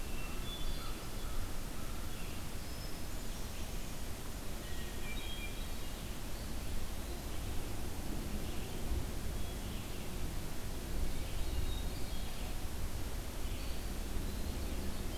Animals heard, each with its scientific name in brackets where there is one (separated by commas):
American Crow (Corvus brachyrhynchos), Eastern Wood-Pewee (Contopus virens), Red-eyed Vireo (Vireo olivaceus), Hermit Thrush (Catharus guttatus)